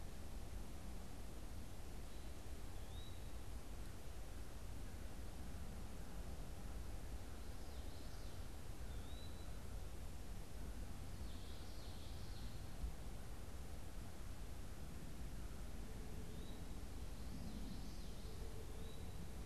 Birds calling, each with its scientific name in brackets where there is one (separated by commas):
Eastern Wood-Pewee (Contopus virens), Common Yellowthroat (Geothlypis trichas)